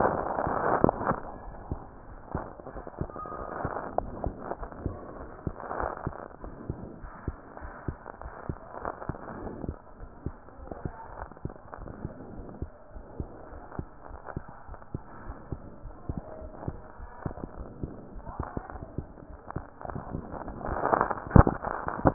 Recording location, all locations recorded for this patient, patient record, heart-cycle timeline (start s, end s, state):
aortic valve (AV)
aortic valve (AV)+pulmonary valve (PV)+tricuspid valve (TV)+mitral valve (MV)
#Age: Child
#Sex: Female
#Height: 122.0 cm
#Weight: 25.9 kg
#Pregnancy status: False
#Murmur: Absent
#Murmur locations: nan
#Most audible location: nan
#Systolic murmur timing: nan
#Systolic murmur shape: nan
#Systolic murmur grading: nan
#Systolic murmur pitch: nan
#Systolic murmur quality: nan
#Diastolic murmur timing: nan
#Diastolic murmur shape: nan
#Diastolic murmur grading: nan
#Diastolic murmur pitch: nan
#Diastolic murmur quality: nan
#Outcome: Normal
#Campaign: 2015 screening campaign
0.00	11.09	unannotated
11.09	11.20	diastole
11.20	11.30	S1
11.30	11.44	systole
11.44	11.54	S2
11.54	11.80	diastole
11.80	11.94	S1
11.94	12.02	systole
12.02	12.12	S2
12.12	12.34	diastole
12.34	12.48	S1
12.48	12.60	systole
12.60	12.72	S2
12.72	12.96	diastole
12.96	13.06	S1
13.06	13.18	systole
13.18	13.30	S2
13.30	13.54	diastole
13.54	13.64	S1
13.64	13.74	systole
13.74	13.86	S2
13.86	14.10	diastole
14.10	14.20	S1
14.20	14.32	systole
14.32	14.44	S2
14.44	14.70	diastole
14.70	14.78	S1
14.78	14.90	systole
14.90	15.02	S2
15.02	15.26	diastole
15.26	15.38	S1
15.38	15.48	systole
15.48	15.60	S2
15.60	15.84	diastole
15.84	15.96	S1
15.96	16.06	systole
16.06	16.18	S2
16.18	16.42	diastole
16.42	16.54	S1
16.54	16.64	systole
16.64	16.76	S2
16.76	17.00	diastole
17.00	17.10	S1
17.10	17.22	systole
17.22	17.32	S2
17.32	17.58	diastole
17.58	17.72	S1
17.72	17.82	systole
17.82	17.92	S2
17.92	18.14	diastole
18.14	18.26	S1
18.26	18.38	systole
18.38	18.52	S2
18.52	18.74	diastole
18.74	18.86	S1
18.86	18.96	systole
18.96	19.10	S2
19.10	19.30	diastole
19.30	19.40	S1
19.40	19.52	systole
19.52	19.66	S2
19.66	19.88	diastole
19.88	22.14	unannotated